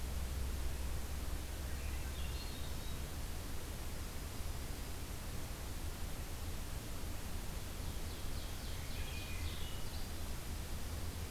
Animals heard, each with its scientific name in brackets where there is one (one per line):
Swainson's Thrush (Catharus ustulatus)
Ovenbird (Seiurus aurocapilla)
Dark-eyed Junco (Junco hyemalis)